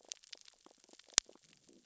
{"label": "biophony, growl", "recorder": "SoundTrap 600 or HydroMoth"}
{"label": "biophony, sea urchins (Echinidae)", "recorder": "SoundTrap 600 or HydroMoth"}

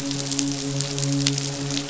{"label": "biophony, midshipman", "recorder": "SoundTrap 500"}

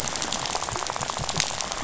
{"label": "biophony, rattle", "recorder": "SoundTrap 500"}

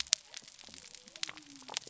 {"label": "biophony", "recorder": "SoundTrap 300"}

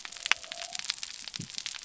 {"label": "biophony", "recorder": "SoundTrap 300"}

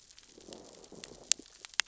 {"label": "biophony, growl", "recorder": "SoundTrap 600 or HydroMoth"}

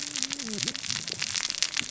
{"label": "biophony, cascading saw", "recorder": "SoundTrap 600 or HydroMoth"}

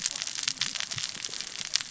{"label": "biophony, cascading saw", "recorder": "SoundTrap 600 or HydroMoth"}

